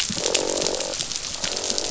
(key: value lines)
label: biophony, croak
recorder: SoundTrap 500